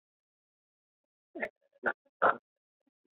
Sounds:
Sniff